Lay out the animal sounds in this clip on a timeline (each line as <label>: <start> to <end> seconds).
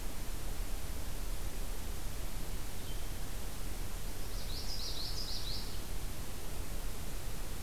Blue-headed Vireo (Vireo solitarius): 2.6 to 7.6 seconds
Common Yellowthroat (Geothlypis trichas): 4.2 to 5.8 seconds